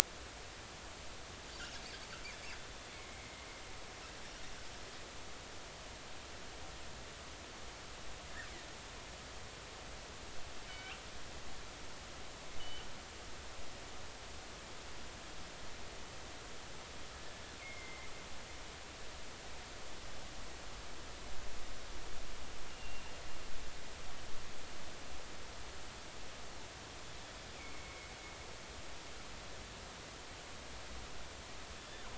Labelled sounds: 2.9	3.3	killer whale, northern resident, 2.0 to 2.3 kHz
10.7	11.0	killer whale, northern resident, G clan, call N24i, 2.2 to 3.2 kHz
12.6	12.9	killer whale, northern resident, G clan, call N24i, 2.7 to 3.1 kHz
17.6	18.1	killer whale, northern resident, G clan, call N23i, 2.0 to 2.4 kHz
22.7	23.0	killer whale, northern resident, G clan, call N23i, 2.7 to 2.9 kHz
27.5	28.1	killer whale, northern resident, G clan, call N23i, 2.0 to 2.5 kHz

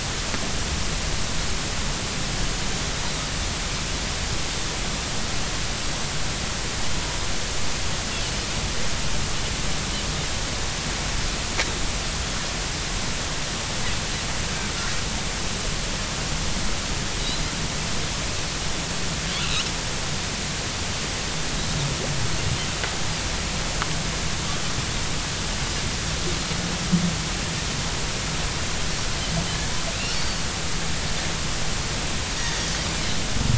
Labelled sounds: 17.2	17.4	Pacific white-sided dolphin, 3.7 to 4.1 kHz
19.4	19.7	Pacific white-sided dolphin, 2.4 to 3.1 kHz
30.2	30.4	Pacific white-sided dolphin, 4.4 to 4.7 kHz

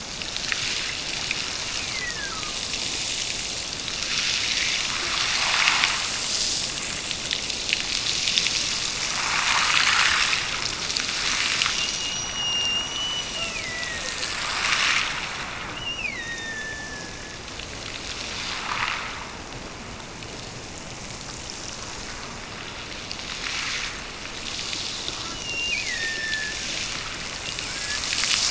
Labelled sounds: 1.5	2.7	killer whale, Bigg's (transient), Gulf of Alaska transient, 1.0 to 2.7 kHz
11.7	14.5	killer whale, Bigg's (transient), Gulf of Alaska transient, 1.5 to 8.0 kHz
15.6	17.5	killer whale, Bigg's (transient), Gulf of Alaska transient, 1.4 to 6.0 kHz
25.3	26.7	killer whale, Bigg's (transient), Gulf of Alaska transient, 1.5 to 3.0 kHz
27.4	28.1	killer whale, Bigg's (transient), Gulf of Alaska transient, 1.3 to 2.9 kHz

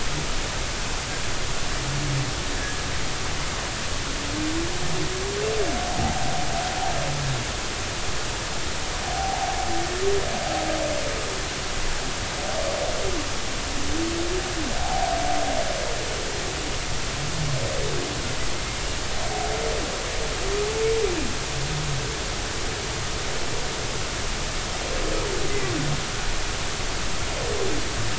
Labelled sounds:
6.0	6.3	humpback whale, 0.80 to 0.96 kHz
9.0	9.6	humpback whale, 0.80 to 0.96 kHz
14.8	15.1	humpback whale, 0.80 to 0.90 kHz

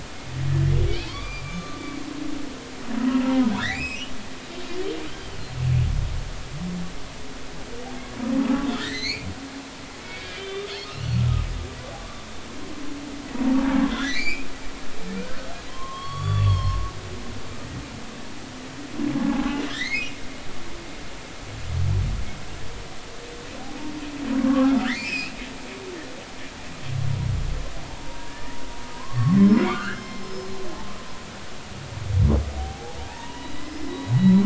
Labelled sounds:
0.5	1.8	humpback whale, 0.83 to 6.5 kHz
3.0	4.1	humpback whale, 0.90 to 4.2 kHz
4.7	5.0	humpback whale, 4.4 to 5.3 kHz
8.7	9.3	humpback whale, 1.7 to 4.7 kHz
10.0	10.7	humpback whale, 2.2 to 3.7 kHz
13.8	14.5	humpback whale, 1.6 to 5.2 kHz
15.7	16.8	humpback whale, 0.96 to 6.9 kHz
19.3	20.2	humpback whale, 0.80 to 4.4 kHz
24.4	25.3	humpback whale, 0.99 to 5.4 kHz
27.9	28.6	humpback whale, 0.80 to 2.0 kHz
28.9	30.5	humpback whale, 0.93 to 5.4 kHz
32.6	34.4	humpback whale, 0.80 to 5.2 kHz

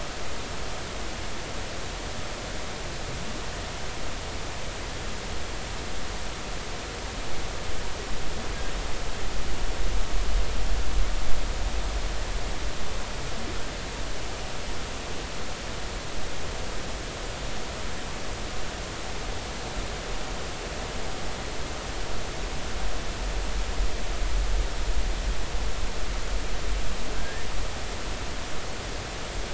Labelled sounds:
27.1	27.5	humpback whale, 1.5 to 1.9 kHz

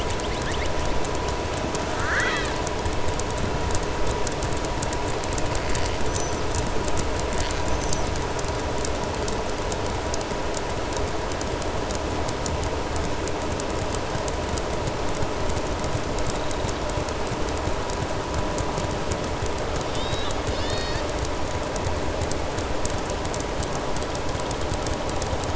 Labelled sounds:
1.9	2.6	killer whale, southern resident, 1.1 to 7.7 kHz
20.4	21.1	killer whale, southern resident, 1.8 to 7.5 kHz

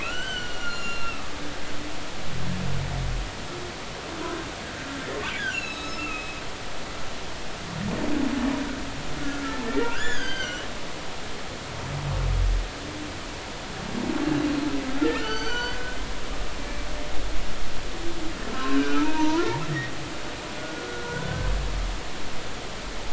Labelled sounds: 0.0	1.3	humpback whale, 1.1 to 7.0 kHz
5.3	6.4	humpback whale, 1.2 to 7.1 kHz
9.2	10.7	humpback whale, 1.3 to 8.0 kHz
15.0	15.8	humpback whale, 1.2 to 6.2 kHz
18.5	19.9	humpback whale, 0.83 to 2.5 kHz
20.9	21.5	humpback whale, 1.4 to 1.6 kHz

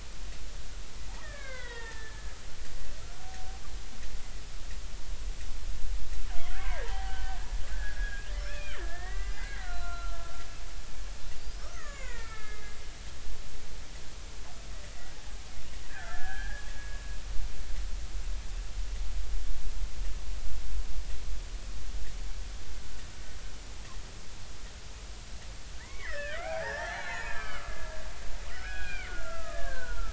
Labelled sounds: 1.1	2.4	killer whale, Bigg's (transient), 0.80 to 4.1 kHz
6.5	7.4	killer whale, Bigg's (transient), 0.80 to 3.2 kHz
7.6	10.4	killer whale, Bigg's (transient), 1.2 to 4.1 kHz
11.7	12.8	killer whale, Bigg's (transient), 0.86 to 7.1 kHz
15.9	16.7	killer whale, Bigg's (transient), 0.80 to 2.0 kHz
25.8	27.7	killer whale, Bigg's (transient), 0.80 to 6.9 kHz
28.5	30.1	killer whale, Bigg's (transient), 0.90 to 3.4 kHz

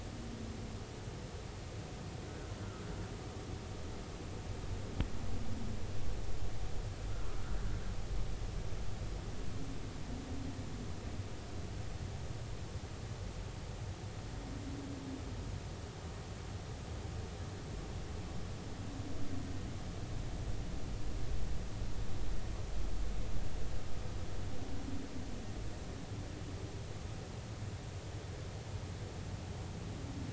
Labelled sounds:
2.2	2.5	humpback whale, 1.3 to 1.5 kHz

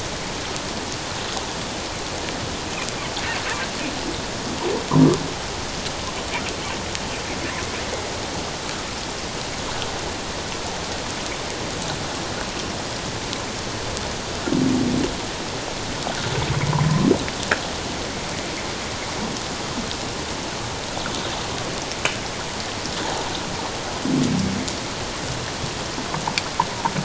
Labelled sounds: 16.8	17.1	humpback whale, 0.97 to 1.2 kHz

